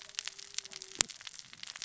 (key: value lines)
label: biophony, cascading saw
recorder: SoundTrap 600 or HydroMoth